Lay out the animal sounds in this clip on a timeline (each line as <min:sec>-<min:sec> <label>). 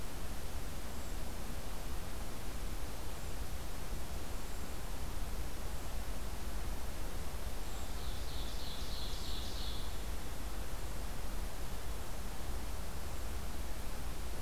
0:07.6-0:10.0 Ovenbird (Seiurus aurocapilla)